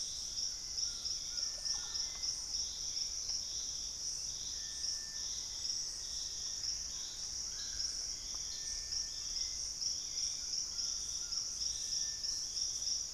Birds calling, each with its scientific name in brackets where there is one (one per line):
Hauxwell's Thrush (Turdus hauxwelli)
Screaming Piha (Lipaugus vociferans)
Black-faced Antthrush (Formicarius analis)
Russet-backed Oropendola (Psarocolius angustifrons)
Collared Trogon (Trogon collaris)